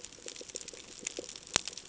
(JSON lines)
{"label": "ambient", "recorder": "HydroMoth"}